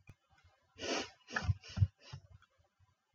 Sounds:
Sniff